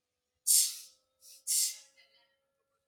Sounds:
Sneeze